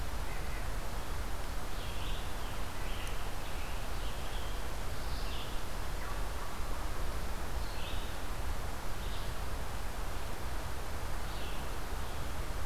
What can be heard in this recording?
Red-breasted Nuthatch, Red-eyed Vireo, Scarlet Tanager